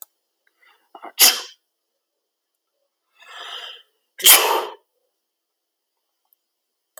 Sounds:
Sneeze